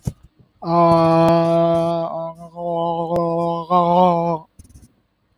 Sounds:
Throat clearing